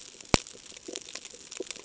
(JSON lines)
{"label": "ambient", "recorder": "HydroMoth"}